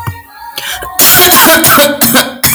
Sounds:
Cough